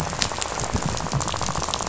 {"label": "biophony, rattle", "recorder": "SoundTrap 500"}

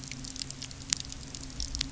{"label": "anthrophony, boat engine", "recorder": "SoundTrap 300"}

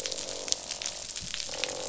{"label": "biophony, croak", "recorder": "SoundTrap 500"}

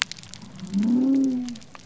{"label": "biophony", "recorder": "SoundTrap 300"}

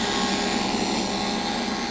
{"label": "anthrophony, boat engine", "recorder": "SoundTrap 500"}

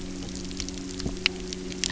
{"label": "anthrophony, boat engine", "recorder": "SoundTrap 300"}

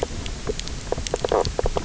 {"label": "biophony, knock croak", "recorder": "SoundTrap 300"}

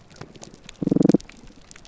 {"label": "biophony, damselfish", "recorder": "SoundTrap 300"}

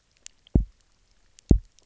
{"label": "biophony, double pulse", "recorder": "SoundTrap 300"}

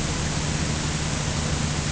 {"label": "anthrophony, boat engine", "recorder": "HydroMoth"}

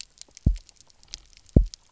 {"label": "biophony, double pulse", "recorder": "SoundTrap 300"}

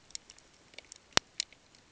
{"label": "ambient", "recorder": "HydroMoth"}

